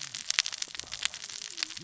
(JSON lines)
{"label": "biophony, cascading saw", "recorder": "SoundTrap 600 or HydroMoth"}